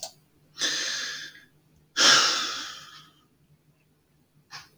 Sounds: Sigh